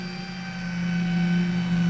{"label": "anthrophony, boat engine", "recorder": "SoundTrap 500"}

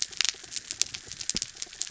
{"label": "anthrophony, mechanical", "recorder": "SoundTrap 300"}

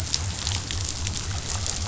{"label": "biophony", "recorder": "SoundTrap 500"}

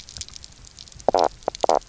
{"label": "biophony, knock croak", "recorder": "SoundTrap 300"}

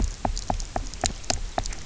{"label": "biophony, knock", "recorder": "SoundTrap 300"}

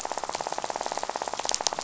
{"label": "biophony, rattle", "recorder": "SoundTrap 500"}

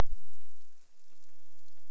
{"label": "biophony", "recorder": "SoundTrap 300"}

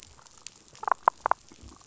{"label": "biophony, damselfish", "recorder": "SoundTrap 500"}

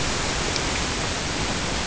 {"label": "ambient", "recorder": "HydroMoth"}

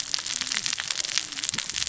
{"label": "biophony, cascading saw", "recorder": "SoundTrap 600 or HydroMoth"}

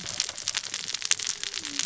{"label": "biophony, cascading saw", "recorder": "SoundTrap 600 or HydroMoth"}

